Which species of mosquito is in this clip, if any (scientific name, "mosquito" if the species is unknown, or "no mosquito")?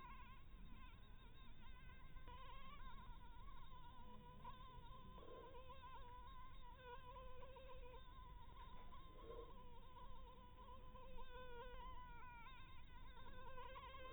Anopheles maculatus